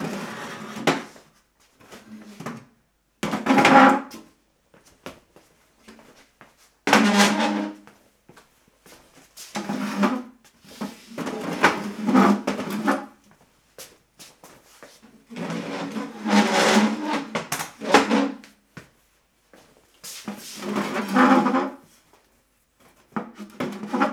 What is causing the squeaking noise?
chair